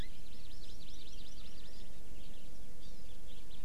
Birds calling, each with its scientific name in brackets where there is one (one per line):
House Finch (Haemorhous mexicanus)
Hawaii Amakihi (Chlorodrepanis virens)